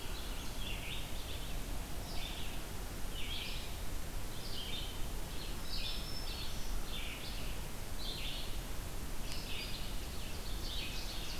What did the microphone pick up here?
Red-eyed Vireo, Black-throated Green Warbler, Ovenbird